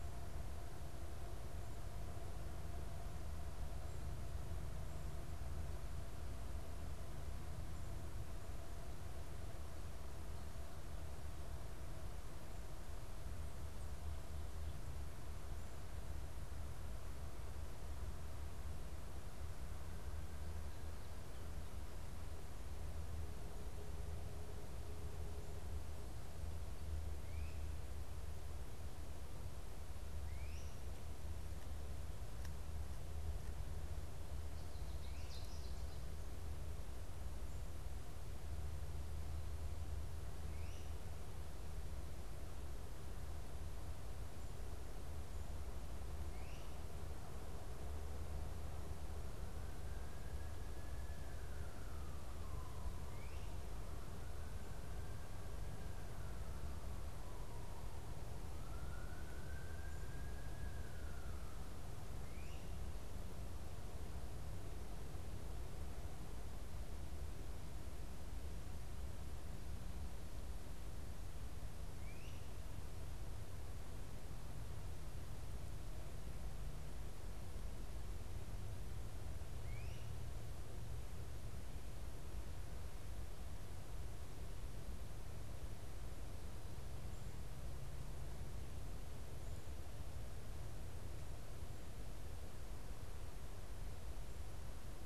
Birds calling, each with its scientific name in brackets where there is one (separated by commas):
Great Crested Flycatcher (Myiarchus crinitus), Ovenbird (Seiurus aurocapilla)